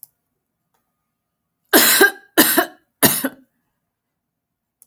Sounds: Cough